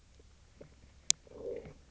{"label": "biophony, low growl", "recorder": "SoundTrap 300"}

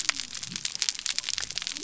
{"label": "biophony", "recorder": "SoundTrap 300"}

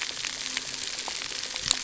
{"label": "anthrophony, boat engine", "recorder": "SoundTrap 300"}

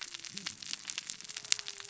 {"label": "biophony, cascading saw", "recorder": "SoundTrap 600 or HydroMoth"}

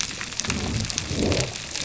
{"label": "biophony", "recorder": "SoundTrap 300"}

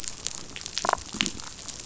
{"label": "biophony, damselfish", "recorder": "SoundTrap 500"}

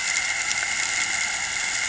{"label": "anthrophony, boat engine", "recorder": "HydroMoth"}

